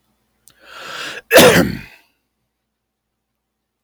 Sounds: Cough